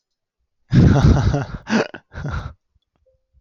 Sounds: Laughter